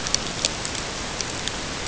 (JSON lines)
{"label": "ambient", "recorder": "HydroMoth"}